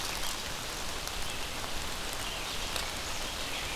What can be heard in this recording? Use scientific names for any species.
Turdus migratorius, Vireo olivaceus